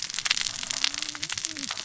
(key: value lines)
label: biophony, cascading saw
recorder: SoundTrap 600 or HydroMoth